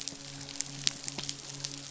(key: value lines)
label: biophony, midshipman
recorder: SoundTrap 500